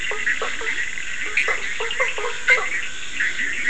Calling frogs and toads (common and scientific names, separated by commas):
Scinax perereca